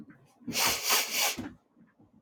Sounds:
Sniff